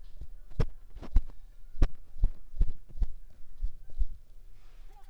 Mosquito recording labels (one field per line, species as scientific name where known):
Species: Mansonia uniformis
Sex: female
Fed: unfed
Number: one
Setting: cup